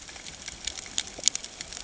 {"label": "ambient", "recorder": "HydroMoth"}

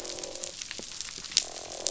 {"label": "biophony, croak", "recorder": "SoundTrap 500"}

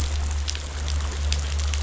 {"label": "anthrophony, boat engine", "recorder": "SoundTrap 500"}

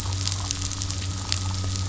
{"label": "anthrophony, boat engine", "recorder": "SoundTrap 500"}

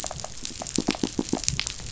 {"label": "biophony, pulse", "recorder": "SoundTrap 500"}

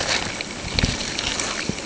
{"label": "ambient", "recorder": "HydroMoth"}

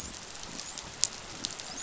{"label": "biophony, dolphin", "recorder": "SoundTrap 500"}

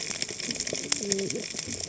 {"label": "biophony, cascading saw", "recorder": "HydroMoth"}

